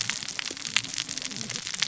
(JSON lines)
{"label": "biophony, cascading saw", "recorder": "SoundTrap 600 or HydroMoth"}